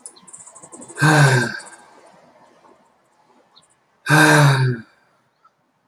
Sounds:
Sigh